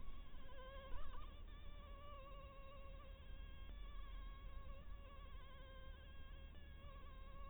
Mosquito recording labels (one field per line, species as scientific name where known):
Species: Anopheles harrisoni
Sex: female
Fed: blood-fed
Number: one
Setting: cup